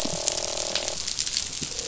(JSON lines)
{"label": "biophony, croak", "recorder": "SoundTrap 500"}